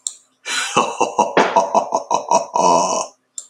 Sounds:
Laughter